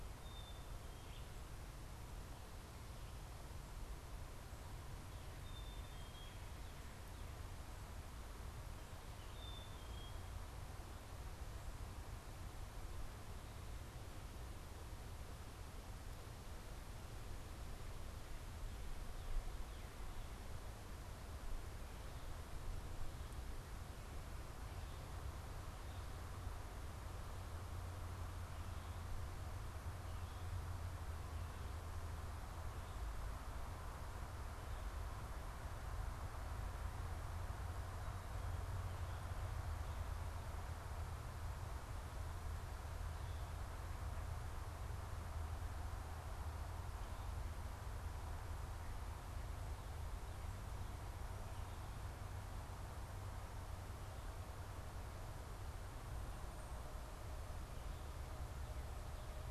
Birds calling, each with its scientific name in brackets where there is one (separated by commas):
Black-capped Chickadee (Poecile atricapillus)